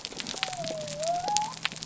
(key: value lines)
label: biophony
recorder: SoundTrap 300